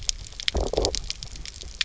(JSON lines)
{"label": "biophony, low growl", "recorder": "SoundTrap 300"}